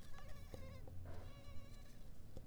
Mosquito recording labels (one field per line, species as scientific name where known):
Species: Culex pipiens complex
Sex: female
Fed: unfed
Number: one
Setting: cup